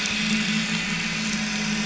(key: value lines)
label: anthrophony, boat engine
recorder: SoundTrap 500